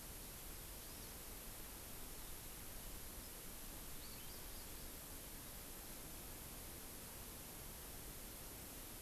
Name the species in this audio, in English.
Hawaii Amakihi